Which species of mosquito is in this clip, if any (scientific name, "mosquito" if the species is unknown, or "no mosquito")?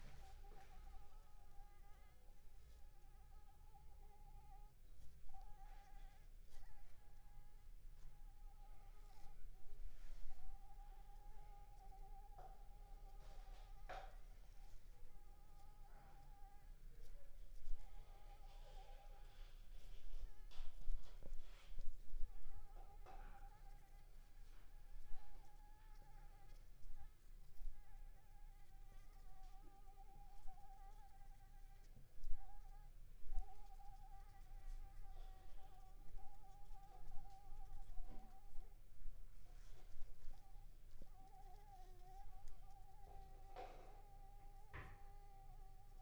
Anopheles arabiensis